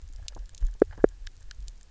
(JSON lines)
{"label": "biophony, knock", "recorder": "SoundTrap 300"}